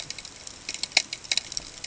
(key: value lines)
label: ambient
recorder: HydroMoth